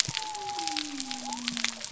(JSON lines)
{"label": "biophony", "recorder": "SoundTrap 300"}